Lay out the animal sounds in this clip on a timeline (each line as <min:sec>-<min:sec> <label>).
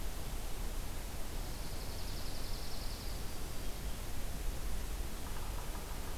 0:01.2-0:03.4 Dark-eyed Junco (Junco hyemalis)